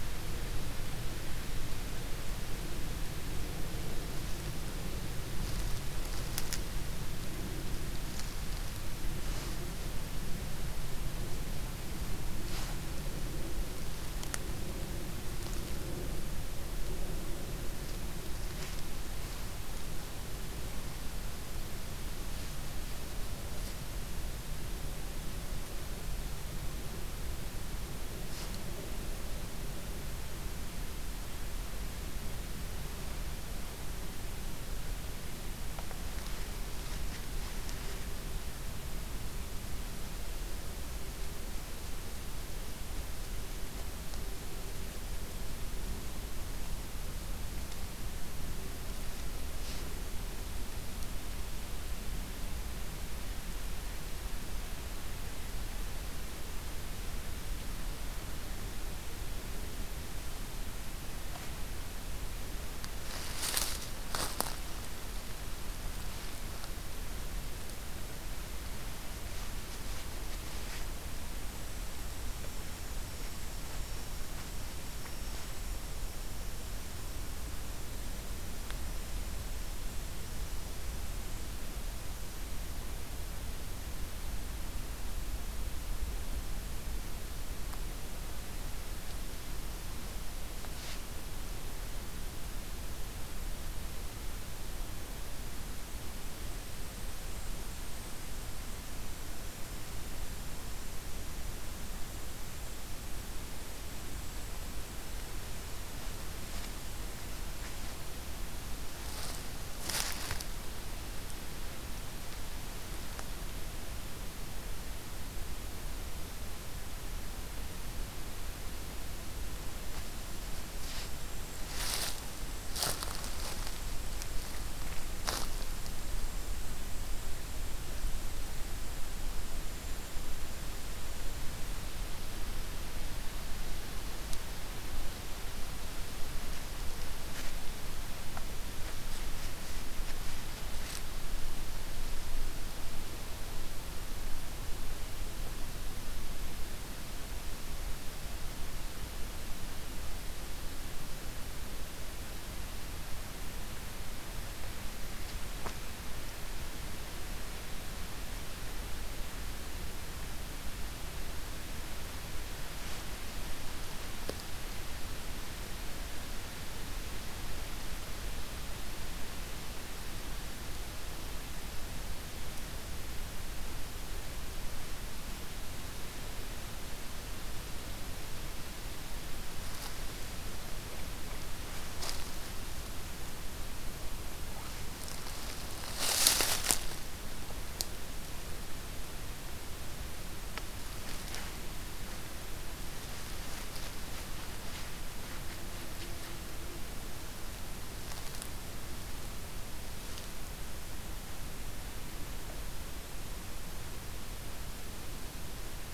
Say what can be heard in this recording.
forest ambience